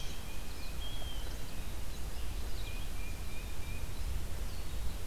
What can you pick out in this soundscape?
Black-throated Green Warbler, Tufted Titmouse, Blue Jay, Red-eyed Vireo